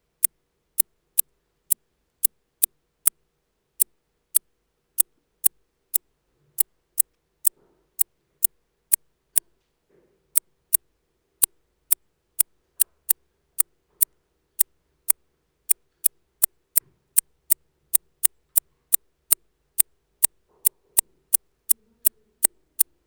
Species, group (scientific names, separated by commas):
Decticus albifrons, Orthoptera